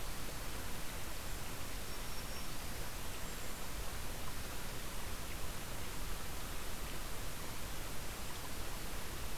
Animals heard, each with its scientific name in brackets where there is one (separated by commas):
Cedar Waxwing (Bombycilla cedrorum), Black-throated Green Warbler (Setophaga virens)